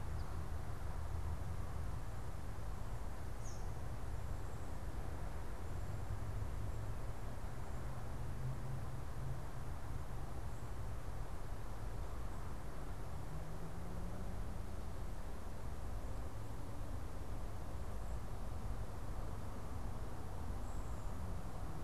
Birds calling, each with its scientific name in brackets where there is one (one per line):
Eastern Kingbird (Tyrannus tyrannus)